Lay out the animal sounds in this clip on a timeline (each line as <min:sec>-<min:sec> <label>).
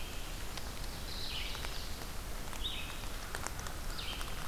0:00.0-0:04.5 Red-eyed Vireo (Vireo olivaceus)